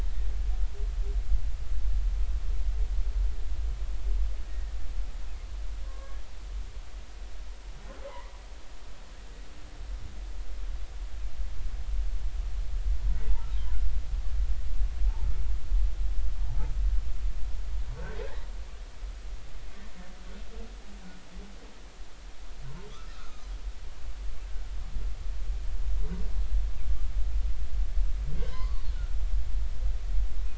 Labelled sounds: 4.5	4.8	humpback whale, 1.8 to 1.9 kHz
5.8	6.2	humpback whale, 0.96 to 1.2 kHz
8.0	8.3	humpback whale, 0.80 to 2.1 kHz
23.1	23.5	humpback whale, 1.1 to 1.5 kHz
28.4	28.8	humpback whale, 0.96 to 3.1 kHz

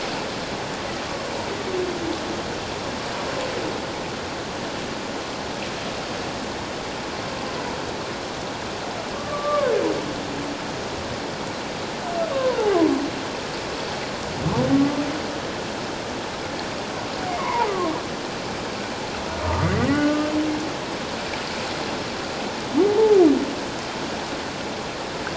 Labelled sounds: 9.2	9.7	humpback whale, 1.0 to 1.2 kHz
12.3	12.6	humpback whale, 0.91 to 1.2 kHz
17.4	17.9	humpback whale, 0.81 to 1.2 kHz
19.5	20.2	humpback whale, 1.1 to 2.1 kHz

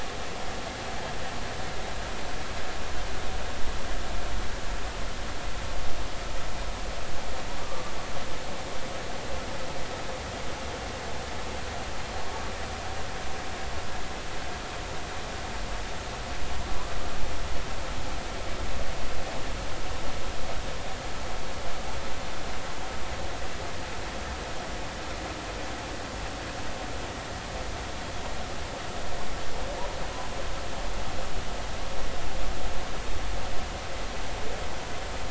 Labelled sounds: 7.6	7.9	humpback whale, 1.1 to 1.2 kHz
12.3	12.5	humpback whale, 1.1 to 1.2 kHz

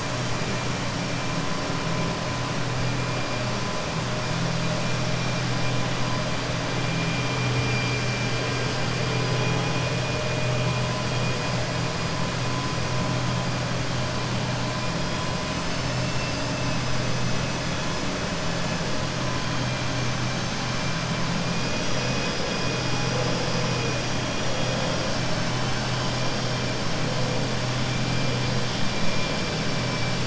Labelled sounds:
21.9	22.3	vessel noise, 1.7 to 3.4 kHz

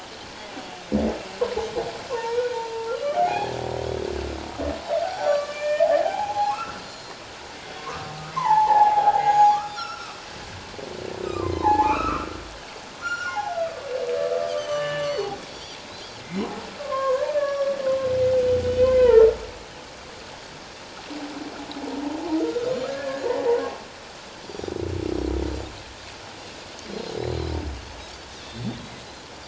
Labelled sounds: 2.1	3.5	humpback whale, 0.78 to 3.2 kHz
5.0	6.8	humpback whale, 0.78 to 5.9 kHz
6.8	7.2	Pacific white-sided dolphin, 4.1 to 7.1 kHz
7.8	9.6	humpback whale, 0.78 to 6.8 kHz
9.5	10.2	Pacific white-sided dolphin, 1.0 to 3.7 kHz
11.2	13.6	humpback whale, 0.78 to 5.8 kHz
14.6	15.3	humpback whale, 1.1 to 7.8 kHz
15.0	16.2	Pacific white-sided dolphin, 3.0 to 6.1 kHz
16.8	17.7	humpback whale, 0.97 to 1.8 kHz
17.4	17.7	Pacific white-sided dolphin, 5.4 to 5.7 kHz
18.6	19.4	humpback whale, 0.84 to 3.2 kHz
22.4	23.2	humpback whale, 1.3 to 1.8 kHz
26.9	27.6	Pacific white-sided dolphin, 3.7 to 4.2 kHz
28.4	28.8	Pacific white-sided dolphin, 3.2 to 4.5 kHz

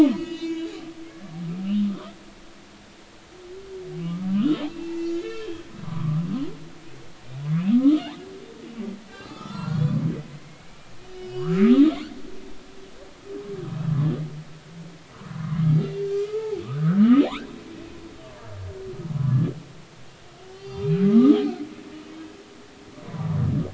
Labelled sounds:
0.1	2.2	humpback whale, 1.0 to 6.6 kHz
4.0	6.2	humpback whale, 0.96 to 3.4 kHz
7.7	8.0	humpback whale, 0.99 to 1.4 kHz
9.1	10.8	humpback whale, 0.90 to 5.5 kHz
11.1	11.8	humpback whale, 1.0 to 4.9 kHz
15.5	17.5	humpback whale, 0.80 to 4.5 kHz
20.5	21.4	humpback whale, 0.99 to 4.4 kHz

